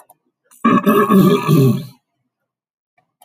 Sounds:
Throat clearing